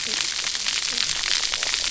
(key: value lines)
label: biophony, cascading saw
recorder: SoundTrap 300